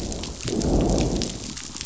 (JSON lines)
{"label": "biophony, growl", "recorder": "SoundTrap 500"}